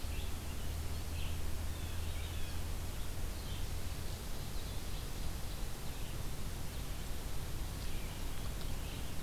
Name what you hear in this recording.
Red-eyed Vireo, Blue Jay